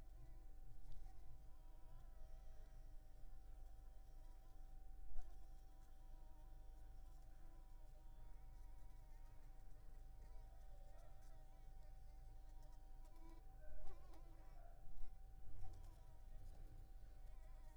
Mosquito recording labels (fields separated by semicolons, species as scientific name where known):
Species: Anopheles arabiensis; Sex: female; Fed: unfed; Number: one; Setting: cup